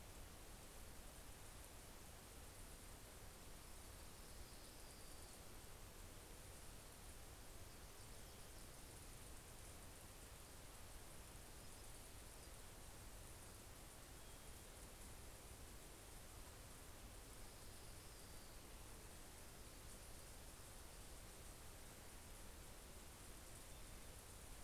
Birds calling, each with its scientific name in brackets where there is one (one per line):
Orange-crowned Warbler (Leiothlypis celata)
Nashville Warbler (Leiothlypis ruficapilla)
Steller's Jay (Cyanocitta stelleri)